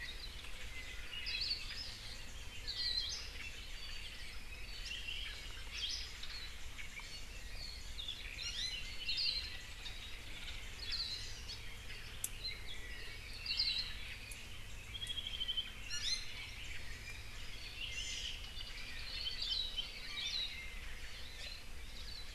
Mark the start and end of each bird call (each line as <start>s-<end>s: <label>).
1.2s-1.7s: Hawaii Akepa (Loxops coccineus)
2.6s-3.3s: Hawaii Akepa (Loxops coccineus)
4.8s-5.4s: Apapane (Himatione sanguinea)
5.7s-6.2s: Hawaii Akepa (Loxops coccineus)
8.3s-8.9s: Iiwi (Drepanis coccinea)
9.0s-9.5s: Apapane (Himatione sanguinea)
9.0s-9.6s: Hawaii Akepa (Loxops coccineus)
10.7s-11.4s: Hawaii Akepa (Loxops coccineus)
13.4s-14.0s: Hawaii Akepa (Loxops coccineus)
14.9s-15.8s: Apapane (Himatione sanguinea)
15.8s-16.4s: Iiwi (Drepanis coccinea)
17.9s-18.4s: Hawaii Amakihi (Chlorodrepanis virens)
18.5s-19.2s: Apapane (Himatione sanguinea)
19.3s-20.6s: Hawaii Akepa (Loxops coccineus)
21.8s-22.3s: Hawaii Akepa (Loxops coccineus)